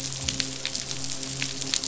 {"label": "biophony, midshipman", "recorder": "SoundTrap 500"}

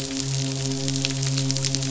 {"label": "biophony, midshipman", "recorder": "SoundTrap 500"}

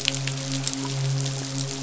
{"label": "biophony, midshipman", "recorder": "SoundTrap 500"}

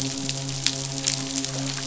{"label": "biophony, midshipman", "recorder": "SoundTrap 500"}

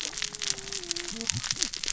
{"label": "biophony, cascading saw", "recorder": "SoundTrap 600 or HydroMoth"}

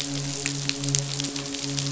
{"label": "biophony, midshipman", "recorder": "SoundTrap 500"}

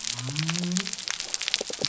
{"label": "biophony", "recorder": "SoundTrap 300"}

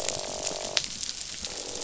{"label": "biophony, croak", "recorder": "SoundTrap 500"}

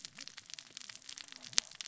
{"label": "biophony, cascading saw", "recorder": "SoundTrap 600 or HydroMoth"}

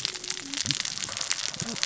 {"label": "biophony, cascading saw", "recorder": "SoundTrap 600 or HydroMoth"}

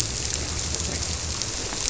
{"label": "biophony", "recorder": "SoundTrap 300"}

